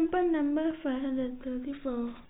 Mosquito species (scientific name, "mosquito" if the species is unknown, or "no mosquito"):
no mosquito